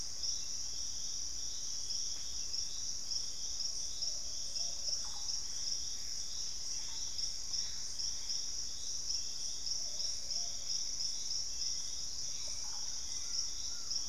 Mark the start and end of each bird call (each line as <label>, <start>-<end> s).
Plumbeous Pigeon (Patagioenas plumbea), 0.0-5.0 s
Russet-backed Oropendola (Psarocolius angustifrons), 4.6-7.6 s
Collared Trogon (Trogon collaris), 5.1-8.6 s
Purple-throated Fruitcrow (Querula purpurata), 6.8-8.7 s
Plumbeous Pigeon (Patagioenas plumbea), 9.6-10.8 s
unidentified bird, 9.6-11.4 s
Hauxwell's Thrush (Turdus hauxwelli), 11.1-14.1 s
Russet-backed Oropendola (Psarocolius angustifrons), 12.2-13.3 s
Collared Trogon (Trogon collaris), 12.4-14.1 s